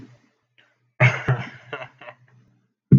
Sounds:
Laughter